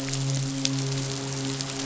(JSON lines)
{"label": "biophony, midshipman", "recorder": "SoundTrap 500"}